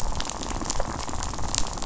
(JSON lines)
{"label": "biophony, rattle", "recorder": "SoundTrap 500"}